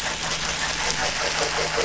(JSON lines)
{"label": "anthrophony, boat engine", "recorder": "SoundTrap 500"}